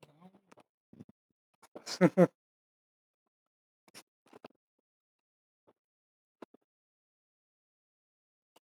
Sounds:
Laughter